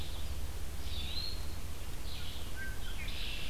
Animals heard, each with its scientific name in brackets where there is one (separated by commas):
Red-winged Blackbird (Agelaius phoeniceus), Red-eyed Vireo (Vireo olivaceus), Eastern Wood-Pewee (Contopus virens)